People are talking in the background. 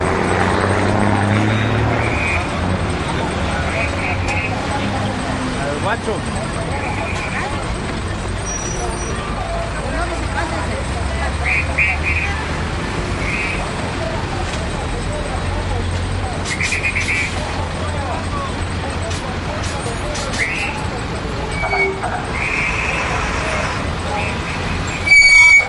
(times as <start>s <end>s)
3.8s 7.7s, 9.9s 21.1s